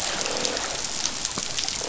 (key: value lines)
label: biophony, croak
recorder: SoundTrap 500